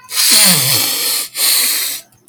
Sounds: Sniff